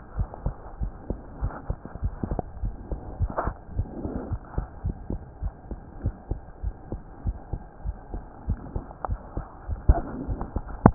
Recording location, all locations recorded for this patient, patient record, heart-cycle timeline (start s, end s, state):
aortic valve (AV)
aortic valve (AV)+pulmonary valve (PV)+tricuspid valve (TV)+mitral valve (MV)
#Age: Child
#Sex: Male
#Height: 94.0 cm
#Weight: 13.5 kg
#Pregnancy status: False
#Murmur: Absent
#Murmur locations: nan
#Most audible location: nan
#Systolic murmur timing: nan
#Systolic murmur shape: nan
#Systolic murmur grading: nan
#Systolic murmur pitch: nan
#Systolic murmur quality: nan
#Diastolic murmur timing: nan
#Diastolic murmur shape: nan
#Diastolic murmur grading: nan
#Diastolic murmur pitch: nan
#Diastolic murmur quality: nan
#Outcome: Normal
#Campaign: 2015 screening campaign
0.00	0.14	unannotated
0.14	0.28	S1
0.28	0.42	systole
0.42	0.56	S2
0.56	0.78	diastole
0.78	0.92	S1
0.92	1.08	systole
1.08	1.18	S2
1.18	1.40	diastole
1.40	1.54	S1
1.54	1.66	systole
1.66	1.78	S2
1.78	2.02	diastole
2.02	2.14	S1
2.14	2.28	systole
2.28	2.40	S2
2.40	2.60	diastole
2.60	2.76	S1
2.76	2.90	systole
2.90	3.00	S2
3.00	3.18	diastole
3.18	3.30	S1
3.30	3.44	systole
3.44	3.56	S2
3.56	3.76	diastole
3.76	3.88	S1
3.88	4.02	systole
4.02	4.14	S2
4.14	4.30	diastole
4.30	4.42	S1
4.42	4.56	systole
4.56	4.66	S2
4.66	4.83	diastole
4.83	4.96	S1
4.96	5.10	systole
5.10	5.22	S2
5.22	5.40	diastole
5.40	5.54	S1
5.54	5.68	systole
5.68	5.80	S2
5.80	6.02	diastole
6.02	6.16	S1
6.16	6.28	systole
6.28	6.42	S2
6.42	6.62	diastole
6.62	6.76	S1
6.76	6.90	systole
6.90	7.00	S2
7.00	7.24	diastole
7.24	7.38	S1
7.38	7.50	systole
7.50	7.62	S2
7.62	7.84	diastole
7.84	7.98	S1
7.98	8.11	systole
8.11	8.24	S2
8.24	8.46	diastole
8.46	8.58	S1
8.58	8.74	systole
8.74	8.84	S2
8.84	9.08	diastole
9.08	9.20	S1
9.20	9.36	systole
9.36	9.46	S2
9.46	10.94	unannotated